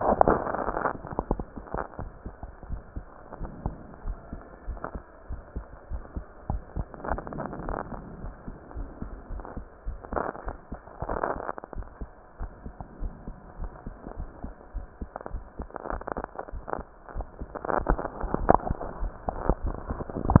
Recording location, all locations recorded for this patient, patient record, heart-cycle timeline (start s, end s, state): pulmonary valve (PV)
aortic valve (AV)+pulmonary valve (PV)+tricuspid valve (TV)+mitral valve (MV)
#Age: nan
#Sex: Female
#Height: nan
#Weight: nan
#Pregnancy status: True
#Murmur: Absent
#Murmur locations: nan
#Most audible location: nan
#Systolic murmur timing: nan
#Systolic murmur shape: nan
#Systolic murmur grading: nan
#Systolic murmur pitch: nan
#Systolic murmur quality: nan
#Diastolic murmur timing: nan
#Diastolic murmur shape: nan
#Diastolic murmur grading: nan
#Diastolic murmur pitch: nan
#Diastolic murmur quality: nan
#Outcome: Abnormal
#Campaign: 2015 screening campaign
0.00	2.68	unannotated
2.68	2.82	S1
2.82	2.96	systole
2.96	3.06	S2
3.06	3.38	diastole
3.38	3.50	S1
3.50	3.62	systole
3.62	3.76	S2
3.76	4.04	diastole
4.04	4.18	S1
4.18	4.30	systole
4.30	4.42	S2
4.42	4.66	diastole
4.66	4.80	S1
4.80	4.91	systole
4.91	5.02	S2
5.02	5.28	diastole
5.28	5.42	S1
5.42	5.54	systole
5.54	5.66	S2
5.66	5.90	diastole
5.90	6.04	S1
6.04	6.14	systole
6.14	6.26	S2
6.26	6.48	diastole
6.48	6.62	S1
6.62	6.74	systole
6.74	6.88	S2
6.88	7.08	diastole
7.08	7.20	S1
7.20	7.34	systole
7.34	7.44	S2
7.44	7.64	diastole
7.64	7.78	S1
7.78	7.90	systole
7.90	8.00	S2
8.00	8.22	diastole
8.22	8.34	S1
8.34	8.46	systole
8.46	8.56	S2
8.56	8.76	diastole
8.76	8.90	S1
8.90	9.00	systole
9.00	9.10	S2
9.10	9.30	diastole
9.30	9.44	S1
9.44	9.56	systole
9.56	9.66	S2
9.66	9.86	diastole
9.86	10.00	S1
10.00	10.12	systole
10.12	10.24	S2
10.24	10.46	diastole
10.46	10.56	S1
10.56	10.72	systole
10.72	10.82	S2
10.82	11.10	diastole
11.10	11.22	S1
11.22	11.34	systole
11.34	11.44	S2
11.44	11.76	diastole
11.76	11.88	S1
11.88	12.00	systole
12.00	12.10	S2
12.10	12.40	diastole
12.40	12.52	S1
12.52	12.64	systole
12.64	12.74	S2
12.74	13.00	diastole
13.00	13.14	S1
13.14	13.28	systole
13.28	13.36	S2
13.36	13.60	diastole
13.60	13.72	S1
13.72	13.86	systole
13.86	13.94	S2
13.94	14.18	diastole
14.18	14.30	S1
14.30	14.42	systole
14.42	14.54	S2
14.54	14.73	diastole
14.73	14.86	S1
14.86	15.00	systole
15.00	15.08	S2
15.08	20.40	unannotated